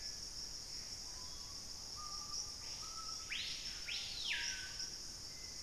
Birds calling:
Screaming Piha (Lipaugus vociferans), unidentified bird, Gray Antbird (Cercomacra cinerascens), Hauxwell's Thrush (Turdus hauxwelli)

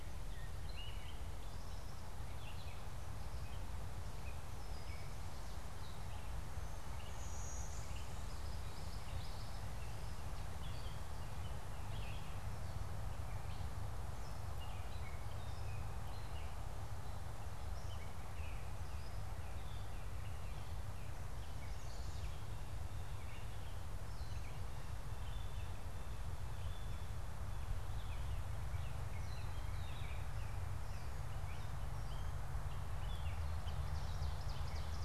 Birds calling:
Blue-winged Warbler (Vermivora cyanoptera), Gray Catbird (Dumetella carolinensis), Common Yellowthroat (Geothlypis trichas), Ovenbird (Seiurus aurocapilla)

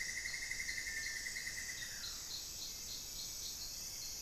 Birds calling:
Cinnamon-throated Woodcreeper (Dendrexetastes rufigula)

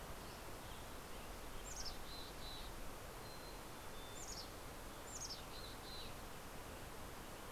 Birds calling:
Mountain Chickadee (Poecile gambeli)

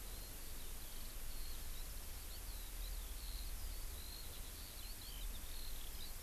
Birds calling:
Eurasian Skylark (Alauda arvensis)

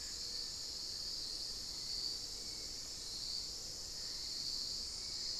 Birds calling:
Little Tinamou (Crypturellus soui)

